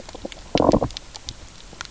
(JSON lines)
{"label": "biophony, low growl", "recorder": "SoundTrap 300"}